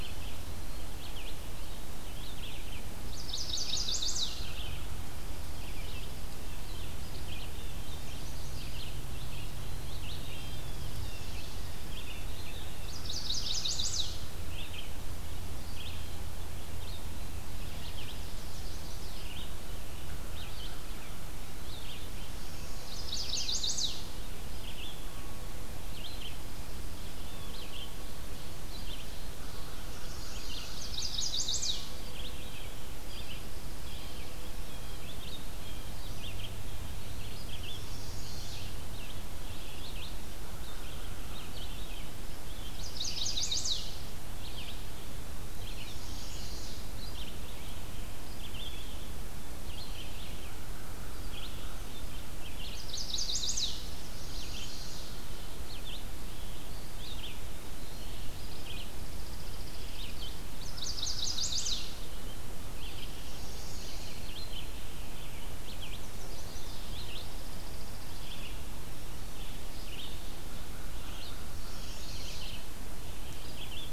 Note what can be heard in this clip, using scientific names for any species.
Vireo olivaceus, Setophaga pensylvanica, Contopus virens, Cyanocitta cristata, Corvus brachyrhynchos, Seiurus aurocapilla, Spizella passerina